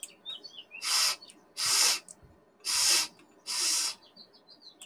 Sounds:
Sniff